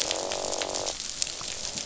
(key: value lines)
label: biophony, croak
recorder: SoundTrap 500